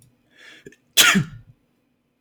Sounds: Sneeze